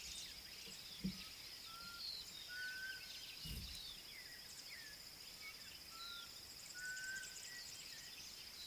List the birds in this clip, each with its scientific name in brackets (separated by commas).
Black Cuckoo (Cuculus clamosus)